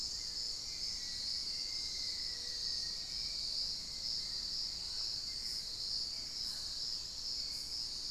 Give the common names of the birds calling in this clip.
Hauxwell's Thrush, Black-faced Antthrush, Mealy Parrot